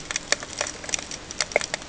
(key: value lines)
label: ambient
recorder: HydroMoth